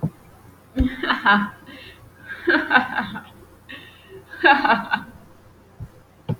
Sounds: Laughter